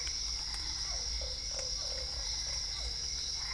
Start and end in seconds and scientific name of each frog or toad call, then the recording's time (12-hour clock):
0.0	3.5	Dendropsophus cruzi
0.0	3.5	Physalaemus cuvieri
0.9	2.1	Boana lundii
7:00pm